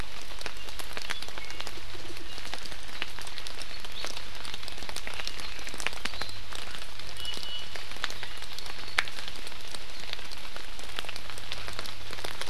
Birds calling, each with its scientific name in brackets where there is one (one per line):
Iiwi (Drepanis coccinea)